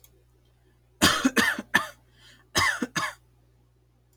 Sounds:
Cough